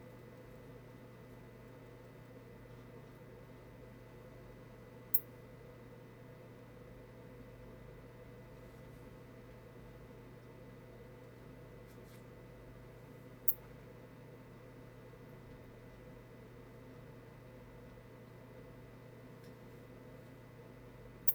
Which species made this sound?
Poecilimon ornatus